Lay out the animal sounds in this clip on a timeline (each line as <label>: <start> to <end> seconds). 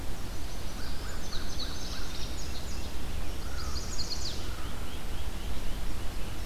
Chestnut-sided Warbler (Setophaga pensylvanica): 0.0 to 0.9 seconds
American Crow (Corvus brachyrhynchos): 0.7 to 2.3 seconds
Indigo Bunting (Passerina cyanea): 1.0 to 3.0 seconds
Downy Woodpecker (Dryobates pubescens): 2.0 to 2.4 seconds
American Crow (Corvus brachyrhynchos): 3.3 to 4.8 seconds
Chestnut-sided Warbler (Setophaga pensylvanica): 3.3 to 4.5 seconds
Great Crested Flycatcher (Myiarchus crinitus): 4.2 to 6.5 seconds